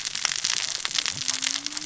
{"label": "biophony, cascading saw", "recorder": "SoundTrap 600 or HydroMoth"}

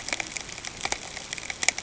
{"label": "ambient", "recorder": "HydroMoth"}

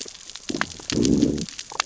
{"label": "biophony, growl", "recorder": "SoundTrap 600 or HydroMoth"}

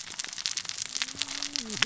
{"label": "biophony, cascading saw", "recorder": "SoundTrap 600 or HydroMoth"}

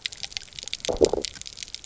{"label": "biophony, low growl", "recorder": "SoundTrap 300"}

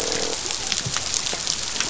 {"label": "biophony, croak", "recorder": "SoundTrap 500"}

